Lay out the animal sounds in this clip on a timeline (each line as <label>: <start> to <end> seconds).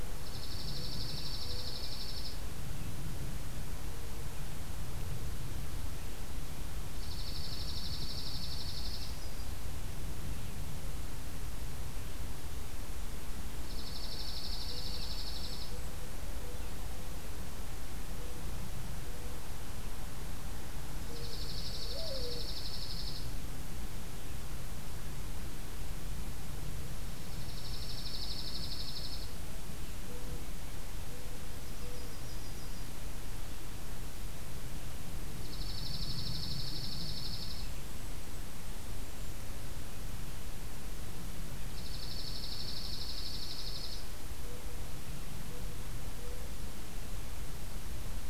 Dark-eyed Junco (Junco hyemalis): 0.1 to 2.4 seconds
Dark-eyed Junco (Junco hyemalis): 6.9 to 9.1 seconds
Yellow-rumped Warbler (Setophaga coronata): 8.7 to 9.6 seconds
Dark-eyed Junco (Junco hyemalis): 13.5 to 15.7 seconds
Golden-crowned Kinglet (Regulus satrapa): 14.7 to 16.2 seconds
Mourning Dove (Zenaida macroura): 21.0 to 22.5 seconds
Dark-eyed Junco (Junco hyemalis): 21.0 to 23.2 seconds
Golden-crowned Kinglet (Regulus satrapa): 21.2 to 21.9 seconds
Dark-eyed Junco (Junco hyemalis): 27.1 to 29.3 seconds
Golden-crowned Kinglet (Regulus satrapa): 27.7 to 29.9 seconds
Mourning Dove (Zenaida macroura): 30.0 to 32.2 seconds
Yellow-rumped Warbler (Setophaga coronata): 31.4 to 33.0 seconds
Dark-eyed Junco (Junco hyemalis): 35.3 to 37.7 seconds
Golden-crowned Kinglet (Regulus satrapa): 37.5 to 39.5 seconds
Dark-eyed Junco (Junco hyemalis): 41.5 to 44.1 seconds